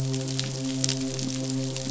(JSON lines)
{"label": "biophony, midshipman", "recorder": "SoundTrap 500"}